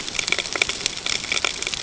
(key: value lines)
label: ambient
recorder: HydroMoth